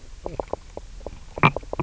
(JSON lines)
{"label": "biophony, knock croak", "recorder": "SoundTrap 300"}